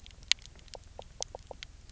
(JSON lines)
{"label": "biophony, knock croak", "recorder": "SoundTrap 300"}